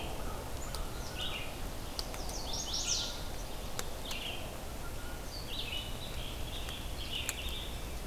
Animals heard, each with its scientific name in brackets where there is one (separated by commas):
Red-eyed Vireo (Vireo olivaceus), Rose-breasted Grosbeak (Pheucticus ludovicianus), American Crow (Corvus brachyrhynchos), Chestnut-sided Warbler (Setophaga pensylvanica)